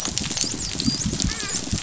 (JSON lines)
{"label": "biophony, dolphin", "recorder": "SoundTrap 500"}